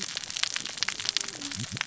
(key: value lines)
label: biophony, cascading saw
recorder: SoundTrap 600 or HydroMoth